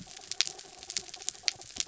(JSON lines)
{"label": "anthrophony, mechanical", "recorder": "SoundTrap 300"}